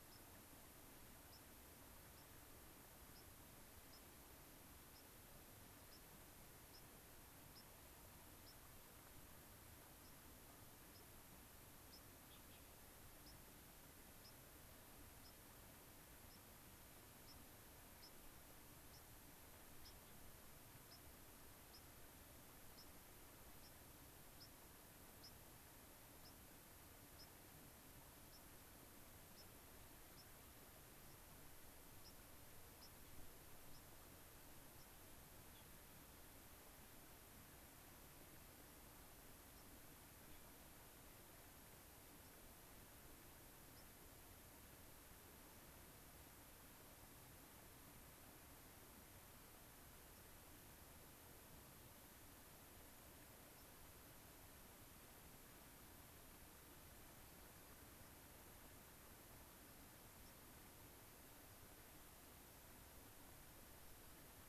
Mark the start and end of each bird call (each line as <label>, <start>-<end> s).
White-crowned Sparrow (Zonotrichia leucophrys), 0.0-0.3 s
White-crowned Sparrow (Zonotrichia leucophrys), 1.2-1.5 s
White-crowned Sparrow (Zonotrichia leucophrys), 2.1-2.3 s
White-crowned Sparrow (Zonotrichia leucophrys), 3.0-3.3 s
White-crowned Sparrow (Zonotrichia leucophrys), 3.8-4.0 s
White-crowned Sparrow (Zonotrichia leucophrys), 4.8-5.0 s
White-crowned Sparrow (Zonotrichia leucophrys), 5.8-6.0 s
White-crowned Sparrow (Zonotrichia leucophrys), 6.6-6.9 s
White-crowned Sparrow (Zonotrichia leucophrys), 7.4-7.7 s
White-crowned Sparrow (Zonotrichia leucophrys), 8.4-8.6 s
White-crowned Sparrow (Zonotrichia leucophrys), 10.0-10.2 s
White-crowned Sparrow (Zonotrichia leucophrys), 10.9-11.0 s
White-crowned Sparrow (Zonotrichia leucophrys), 11.9-12.0 s
White-crowned Sparrow (Zonotrichia leucophrys), 13.2-13.4 s
White-crowned Sparrow (Zonotrichia leucophrys), 14.1-14.4 s
White-crowned Sparrow (Zonotrichia leucophrys), 15.2-15.3 s
White-crowned Sparrow (Zonotrichia leucophrys), 16.2-16.4 s
White-crowned Sparrow (Zonotrichia leucophrys), 17.1-17.4 s
White-crowned Sparrow (Zonotrichia leucophrys), 17.9-18.2 s
White-crowned Sparrow (Zonotrichia leucophrys), 18.9-19.0 s
White-crowned Sparrow (Zonotrichia leucophrys), 19.8-20.0 s
White-crowned Sparrow (Zonotrichia leucophrys), 20.8-21.0 s
White-crowned Sparrow (Zonotrichia leucophrys), 21.7-21.9 s
White-crowned Sparrow (Zonotrichia leucophrys), 22.7-22.9 s
White-crowned Sparrow (Zonotrichia leucophrys), 23.5-23.8 s
White-crowned Sparrow (Zonotrichia leucophrys), 24.3-24.5 s
White-crowned Sparrow (Zonotrichia leucophrys), 25.2-25.3 s
White-crowned Sparrow (Zonotrichia leucophrys), 26.2-26.4 s
White-crowned Sparrow (Zonotrichia leucophrys), 27.1-27.3 s
White-crowned Sparrow (Zonotrichia leucophrys), 28.2-28.5 s
White-crowned Sparrow (Zonotrichia leucophrys), 29.3-29.5 s
White-crowned Sparrow (Zonotrichia leucophrys), 30.1-30.3 s
White-crowned Sparrow (Zonotrichia leucophrys), 32.0-32.2 s
White-crowned Sparrow (Zonotrichia leucophrys), 32.8-32.9 s
White-crowned Sparrow (Zonotrichia leucophrys), 33.7-33.9 s
White-crowned Sparrow (Zonotrichia leucophrys), 34.7-34.9 s
Gray-crowned Rosy-Finch (Leucosticte tephrocotis), 35.5-35.8 s
White-crowned Sparrow (Zonotrichia leucophrys), 39.5-39.7 s
Gray-crowned Rosy-Finch (Leucosticte tephrocotis), 40.2-40.5 s
White-crowned Sparrow (Zonotrichia leucophrys), 42.1-42.4 s
White-crowned Sparrow (Zonotrichia leucophrys), 43.6-43.9 s
White-crowned Sparrow (Zonotrichia leucophrys), 50.0-50.3 s
White-crowned Sparrow (Zonotrichia leucophrys), 53.5-53.7 s
White-crowned Sparrow (Zonotrichia leucophrys), 60.2-60.4 s